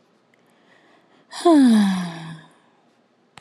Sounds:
Sigh